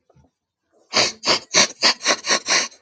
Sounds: Sniff